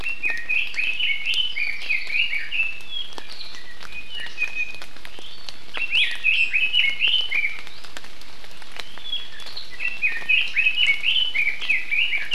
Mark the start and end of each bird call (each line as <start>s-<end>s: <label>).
0.0s-3.2s: Red-billed Leiothrix (Leiothrix lutea)
3.9s-5.0s: Iiwi (Drepanis coccinea)